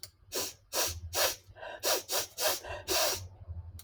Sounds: Sniff